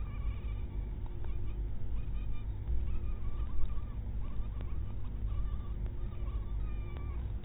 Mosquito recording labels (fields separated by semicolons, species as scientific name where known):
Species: mosquito; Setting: cup